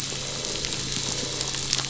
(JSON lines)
{"label": "anthrophony, boat engine", "recorder": "SoundTrap 500"}